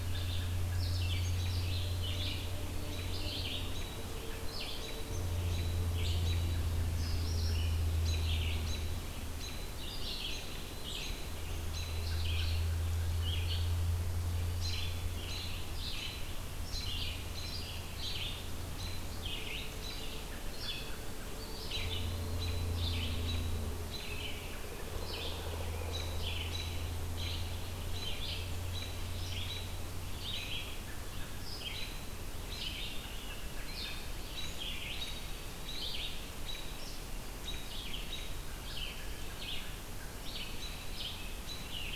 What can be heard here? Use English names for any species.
American Robin, Red-eyed Vireo, Scarlet Tanager